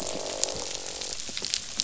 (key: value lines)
label: biophony, croak
recorder: SoundTrap 500